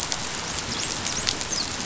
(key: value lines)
label: biophony, dolphin
recorder: SoundTrap 500